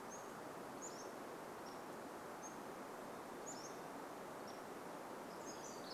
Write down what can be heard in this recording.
Pacific-slope Flycatcher song, Pacific Wren song